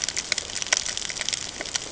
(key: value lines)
label: ambient
recorder: HydroMoth